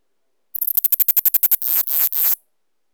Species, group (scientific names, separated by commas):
Neocallicrania selligera, Orthoptera